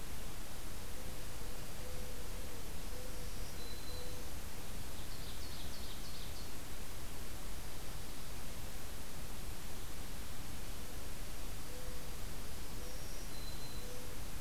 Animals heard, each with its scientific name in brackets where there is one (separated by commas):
Ovenbird (Seiurus aurocapilla), Mourning Dove (Zenaida macroura), Black-throated Green Warbler (Setophaga virens)